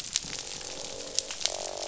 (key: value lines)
label: biophony, croak
recorder: SoundTrap 500